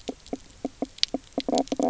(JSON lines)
{"label": "biophony, knock croak", "recorder": "SoundTrap 300"}